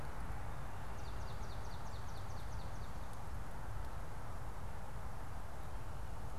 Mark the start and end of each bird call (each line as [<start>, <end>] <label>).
[1.27, 2.97] Swamp Sparrow (Melospiza georgiana)